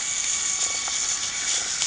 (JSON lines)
{"label": "anthrophony, boat engine", "recorder": "HydroMoth"}